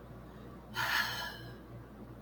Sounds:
Sigh